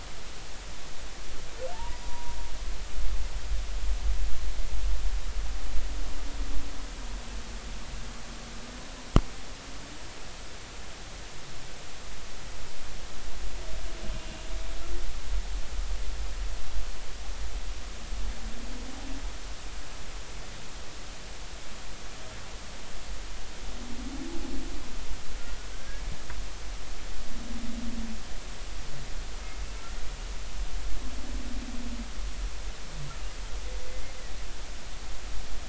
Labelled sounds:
1.7	2.4	humpback whale, 0.83 to 1.0 kHz

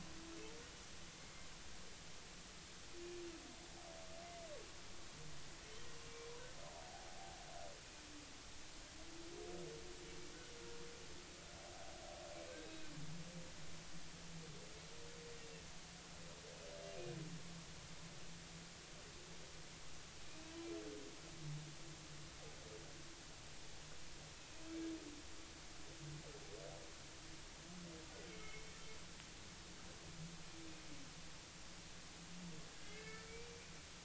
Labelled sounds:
0.7	1.5	humpback whale, 2.0 to 6.0 kHz
6.1	6.3	humpback whale, 2.2 to 2.4 kHz
12.6	12.9	humpback whale, 3.7 to 3.9 kHz
20.3	20.6	humpback whale, 2.4 to 2.7 kHz
28.3	28.8	humpback whale, 2.1 to 2.3 kHz
32.8	33.7	humpback whale, 1.7 to 2.4 kHz

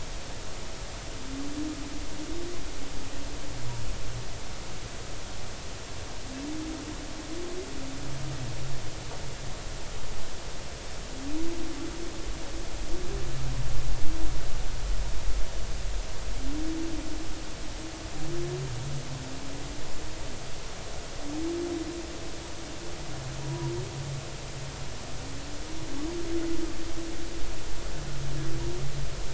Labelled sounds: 23.4	23.7	humpback whale, 0.90 to 1.0 kHz

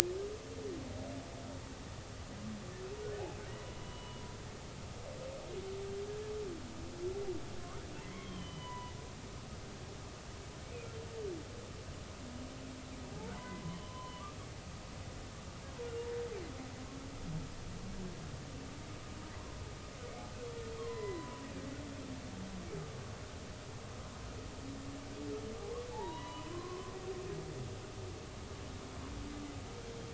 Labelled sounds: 3.8	4.2	humpback whale, 0.96 to 3.0 kHz
8.0	9.0	humpback whale, 0.86 to 3.4 kHz
10.6	10.9	humpback whale, 2.2 to 2.6 kHz
13.3	14.2	humpback whale, 0.93 to 3.1 kHz
19.4	19.6	humpback whale, 0.96 to 1.1 kHz
20.8	21.4	humpback whale, 0.96 to 2.1 kHz
25.9	26.9	humpback whale, 0.80 to 3.0 kHz

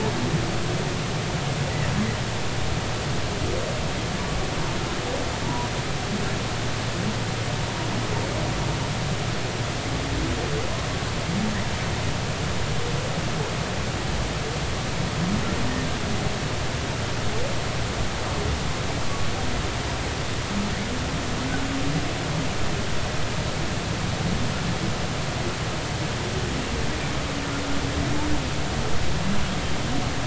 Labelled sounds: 5.4	5.7	humpback whale, 0.86 to 1.0 kHz

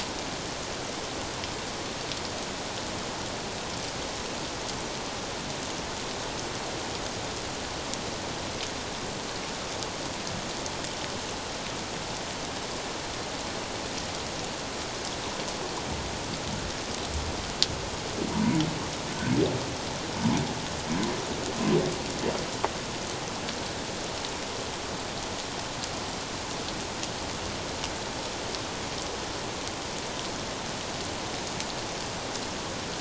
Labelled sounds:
18.3	18.6	humpback whale, 0.88 to 1.0 kHz

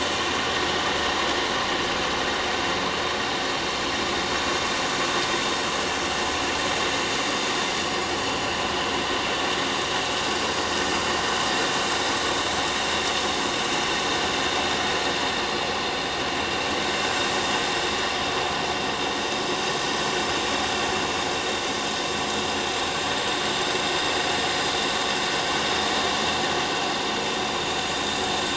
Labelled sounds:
1.0	1.4	vessel noise, 6.5 to 6.6 kHz

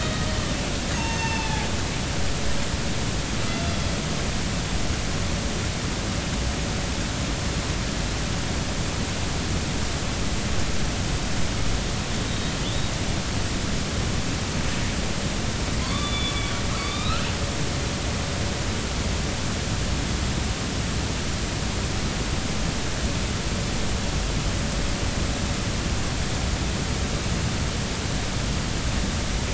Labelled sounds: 0.9	2.6	killer whale, northern resident, A clan, AB subclan, B01 pod, call N18, 0.80 to 6.6 kHz
12.3	12.9	killer whale, northern resident, A clan, AB subclan, call N07iii, 3.3 to 3.9 kHz
15.8	16.3	killer whale, northern resident, A clan, AB subclan, 0.96 to 8.0 kHz
16.8	17.3	killer whale, northern resident, A clan, AB subclan, call N16, 1.1 to 5.0 kHz
17.9	18.3	killer whale, northern resident, A clan, AB subclan, call N16, 2.3 to 2.7 kHz

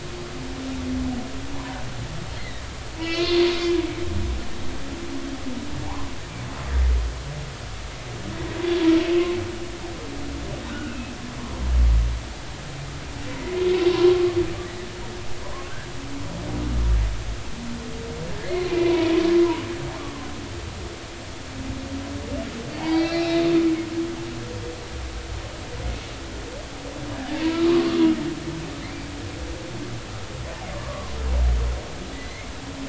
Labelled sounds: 1.5	1.8	humpback whale, 0.83 to 1.1 kHz
2.3	3.8	humpback whale, 1.8 to 4.4 kHz
10.7	11.1	humpback whale, 1.3 to 2.8 kHz
13.3	14.2	humpback whale, 0.93 to 1.2 kHz
15.7	15.9	humpback whale, 1.3 to 1.8 kHz
18.4	19.1	humpback whale, 0.93 to 4.4 kHz
20.0	20.2	humpback whale, 1.0 to 1.2 kHz
22.7	23.3	humpback whale, 0.80 to 5.7 kHz
27.3	27.6	humpback whale, 0.86 to 1.1 kHz
30.7	31.2	humpback whale, 0.96 to 1.2 kHz
32.1	32.5	humpback whale, 1.9 to 2.2 kHz

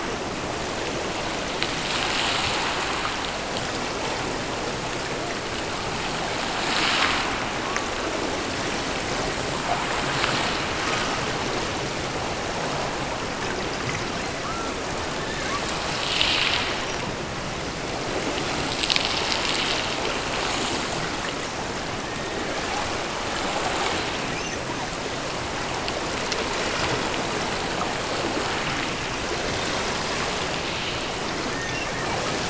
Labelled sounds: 14.1	15.7	killer whale, offshore, 0.86 to 2.9 kHz
21.8	22.6	killer whale, offshore, 1.1 to 2.0 kHz
24.3	24.9	killer whale, offshore, 0.61 to 6.3 kHz
31.5	32.1	killer whale, offshore, 1.5 to 3.8 kHz

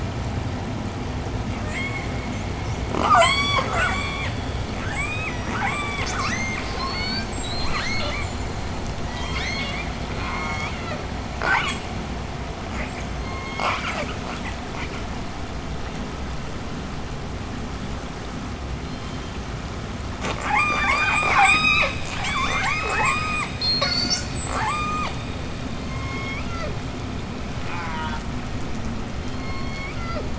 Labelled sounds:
1.4	2.4	killer whale, southern resident, J pod, 0.75 to 8.0 kHz
2.8	12.0	killer whale, southern resident, J pod, 0.26 to 8.0 kHz
12.5	15.3	killer whale, southern resident, J pod, 0.28 to 8.0 kHz
18.6	19.7	killer whale, southern resident, J pod, 2.7 to 7.5 kHz
20.0	26.8	killer whale, southern resident, J pod, 0.21 to 8.0 kHz
27.4	28.4	killer whale, southern resident, J pod, call S04, 0.57 to 6.3 kHz
29.2	30.3	killer whale, southern resident, J pod, 0.26 to 5.7 kHz

